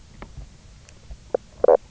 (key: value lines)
label: biophony, knock croak
recorder: SoundTrap 300